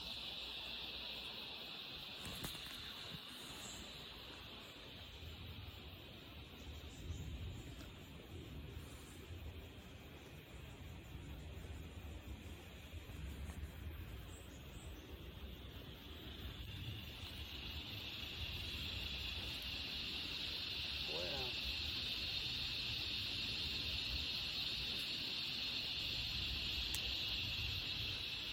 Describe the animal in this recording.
Henicopsaltria eydouxii, a cicada